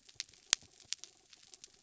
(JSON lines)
{"label": "anthrophony, mechanical", "recorder": "SoundTrap 300"}